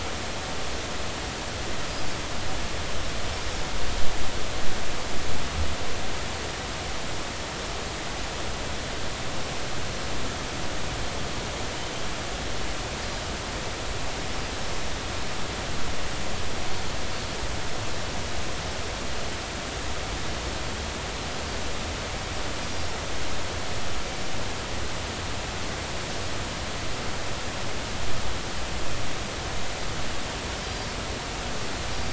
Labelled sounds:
30.6	30.9	Pacific white-sided dolphin, 4.7 to 5.7 kHz

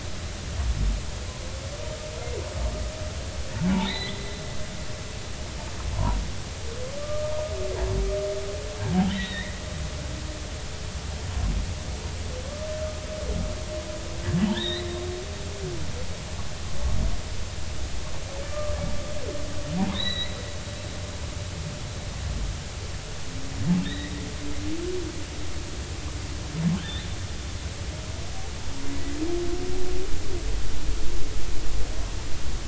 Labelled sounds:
3.8	4.4	humpback whale, 1.8 to 4.2 kHz
5.9	6.2	humpback whale, 0.80 to 1.1 kHz
7.0	7.3	humpback whale, 1.1 to 1.2 kHz
9.1	9.6	humpback whale, 1.8 to 3.9 kHz
14.5	14.9	humpback whale, 1.6 to 4.2 kHz
18.5	18.8	humpback whale, 1.1 to 1.3 kHz
19.9	20.4	humpback whale, 1.8 to 4.2 kHz
23.8	24.2	humpback whale, 1.7 to 3.9 kHz
26.8	27.1	humpback whale, 3.5 to 4.1 kHz

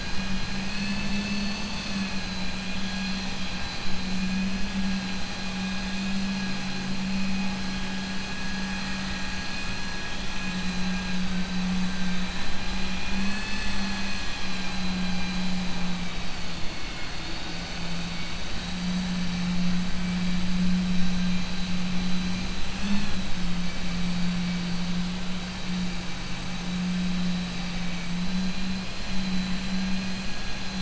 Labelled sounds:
3.3	3.8	vessel noise, 2.4 to 4.8 kHz

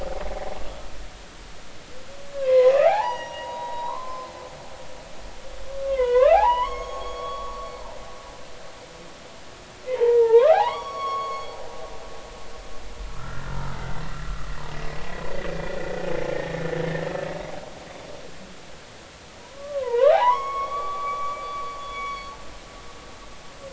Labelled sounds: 2.3	4.3	humpback whale, 0.80 to 5.9 kHz
5.7	7.7	humpback whale, 0.80 to 6.7 kHz
9.9	11.6	humpback whale, 0.80 to 6.7 kHz
13.1	13.8	humpback whale, 1.1 to 1.5 kHz
15.5	15.7	humpback whale, 2.3 to 2.5 kHz
16.3	17.3	humpback whale, 1.2 to 1.9 kHz
19.4	22.3	humpback whale, 0.80 to 5.7 kHz

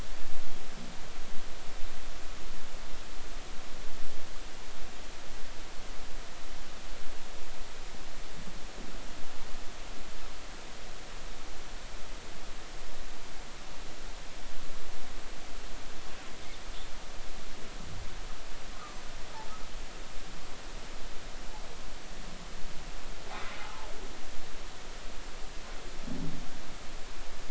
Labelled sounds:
23.3	23.6	humpback whale, 0.99 to 2.1 kHz

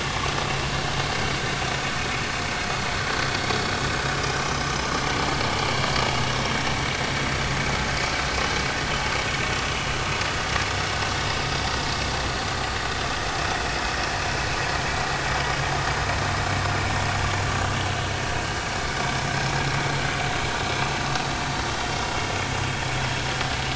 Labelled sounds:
19.3	19.5	vessel noise, 5.2 to 5.3 kHz

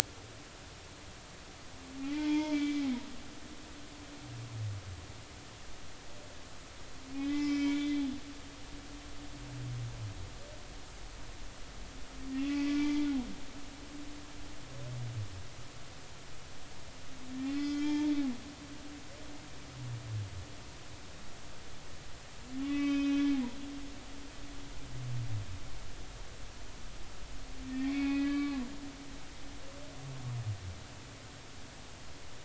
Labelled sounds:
2.0	3.0	humpback whale, 0.86 to 3.4 kHz
7.2	8.0	humpback whale, 1.9 to 3.6 kHz
12.4	13.1	humpback whale, 1.9 to 2.6 kHz
17.4	18.1	humpback whale, 0.83 to 4.4 kHz
22.6	23.3	humpback whale, 1.1 to 4.9 kHz
27.8	28.6	humpback whale, 1.1 to 3.7 kHz

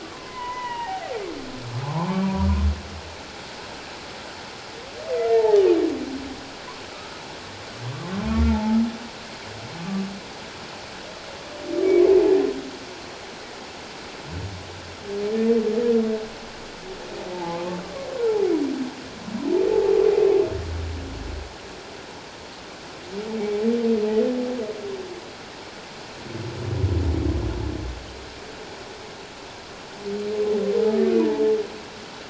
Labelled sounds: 0.0	1.2	humpback whale, 0.78 to 3.0 kHz
1.8	2.3	humpback whale, 0.78 to 2.4 kHz
5.3	5.7	humpback whale, 0.78 to 0.97 kHz
8.5	8.8	humpback whale, 0.81 to 0.94 kHz
9.8	10.0	humpback whale, 1.1 to 1.2 kHz
17.3	17.6	humpback whale, 0.78 to 0.94 kHz

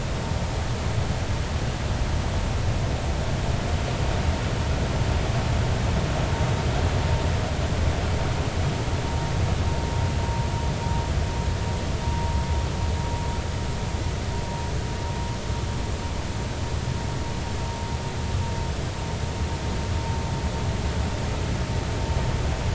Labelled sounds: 12.0	12.3	vessel noise, 0.90 to 0.99 kHz

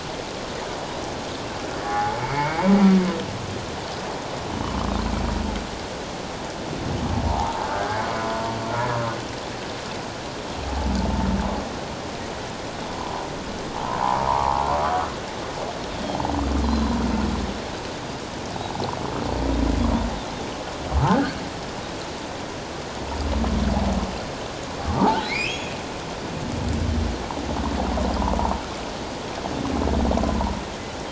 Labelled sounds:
1.8	2.7	humpback whale, 0.78 to 2.3 kHz
7.3	7.7	humpback whale, 0.78 to 1.0 kHz
12.9	14.6	humpback whale, 0.78 to 1.2 kHz
16.6	16.9	Pacific white-sided dolphin, 3.9 to 4.2 kHz
25.0	25.7	humpback whale, 0.78 to 5.3 kHz

